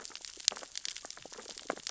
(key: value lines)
label: biophony, sea urchins (Echinidae)
recorder: SoundTrap 600 or HydroMoth